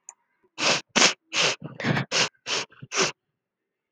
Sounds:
Sniff